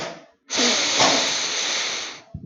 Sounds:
Sniff